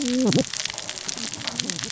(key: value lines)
label: biophony, cascading saw
recorder: SoundTrap 600 or HydroMoth